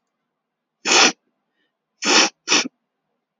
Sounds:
Sniff